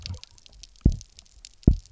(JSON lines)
{"label": "biophony, double pulse", "recorder": "SoundTrap 300"}